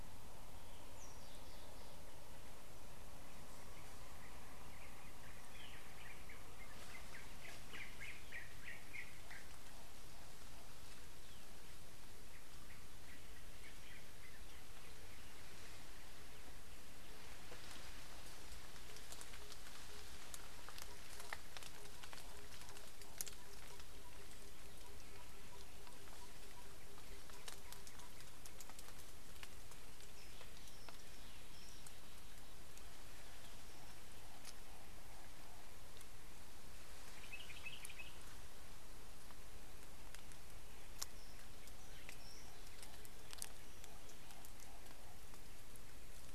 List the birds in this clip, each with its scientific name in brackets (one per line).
Yellow-whiskered Greenbul (Eurillas latirostris)
Common Bulbul (Pycnonotus barbatus)
Tambourine Dove (Turtur tympanistria)